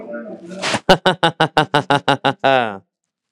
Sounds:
Laughter